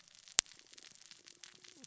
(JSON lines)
{"label": "biophony, cascading saw", "recorder": "SoundTrap 600 or HydroMoth"}